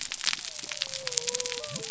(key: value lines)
label: biophony
recorder: SoundTrap 300